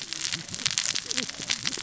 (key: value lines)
label: biophony, cascading saw
recorder: SoundTrap 600 or HydroMoth